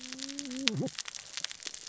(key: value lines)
label: biophony, cascading saw
recorder: SoundTrap 600 or HydroMoth